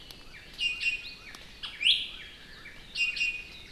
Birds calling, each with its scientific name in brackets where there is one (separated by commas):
Iiwi (Drepanis coccinea), Northern Cardinal (Cardinalis cardinalis)